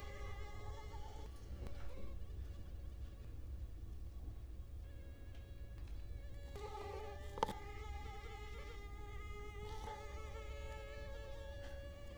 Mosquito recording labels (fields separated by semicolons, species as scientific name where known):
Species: Culex quinquefasciatus; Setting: cup